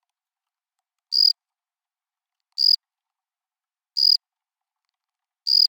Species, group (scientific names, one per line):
Gryllus assimilis
Orthoptera